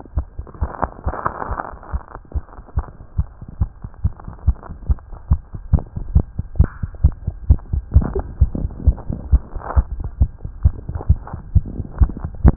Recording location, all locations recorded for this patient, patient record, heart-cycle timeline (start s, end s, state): tricuspid valve (TV)
aortic valve (AV)+pulmonary valve (PV)+tricuspid valve (TV)+mitral valve (MV)
#Age: Child
#Sex: Male
#Height: 106.0 cm
#Weight: 16.7 kg
#Pregnancy status: False
#Murmur: Absent
#Murmur locations: nan
#Most audible location: nan
#Systolic murmur timing: nan
#Systolic murmur shape: nan
#Systolic murmur grading: nan
#Systolic murmur pitch: nan
#Systolic murmur quality: nan
#Diastolic murmur timing: nan
#Diastolic murmur shape: nan
#Diastolic murmur grading: nan
#Diastolic murmur pitch: nan
#Diastolic murmur quality: nan
#Outcome: Normal
#Campaign: 2015 screening campaign
0.00	6.80	unannotated
6.80	6.88	S1
6.88	7.01	systole
7.01	7.14	S2
7.14	7.25	diastole
7.25	7.34	S1
7.34	7.48	systole
7.48	7.60	S2
7.60	7.70	diastole
7.70	7.82	S1
7.82	7.92	systole
7.92	8.08	S2
8.08	8.16	diastole
8.16	8.24	S1
8.24	8.38	systole
8.38	8.50	S2
8.50	8.62	diastole
8.62	8.70	S1
8.70	8.86	systole
8.86	8.96	S2
8.96	9.07	diastole
9.07	9.16	S1
9.16	9.29	systole
9.29	9.42	S2
9.42	9.53	diastole
9.53	9.62	S1
9.62	9.75	systole
9.75	9.86	S2
9.86	12.56	unannotated